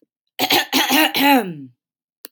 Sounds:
Throat clearing